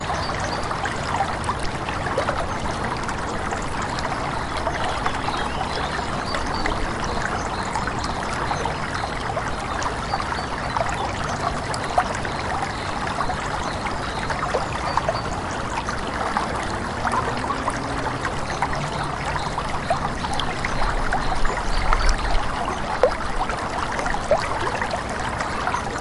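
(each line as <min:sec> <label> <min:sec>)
0:00.0 Flowing water continuously and birds chirping in the distance. 0:26.0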